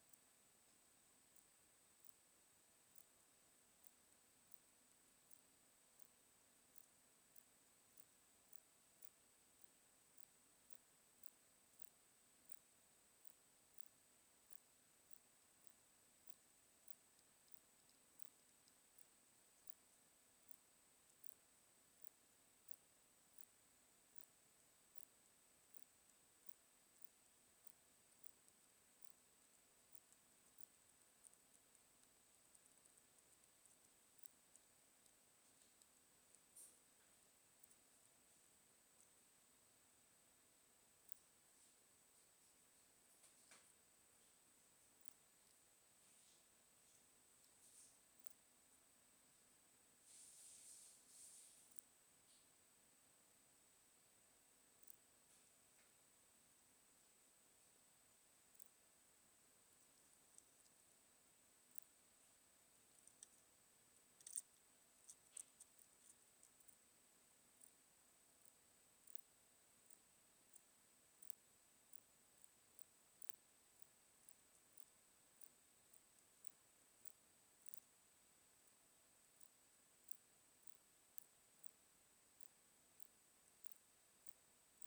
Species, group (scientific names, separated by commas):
Poecilimon ikariensis, Orthoptera